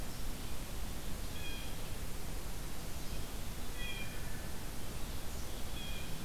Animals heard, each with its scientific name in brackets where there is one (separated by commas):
Blue Jay (Cyanocitta cristata)